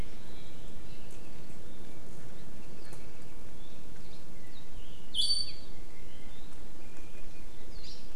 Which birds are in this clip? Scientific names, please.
Drepanis coccinea, Chlorodrepanis virens